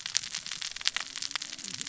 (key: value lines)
label: biophony, cascading saw
recorder: SoundTrap 600 or HydroMoth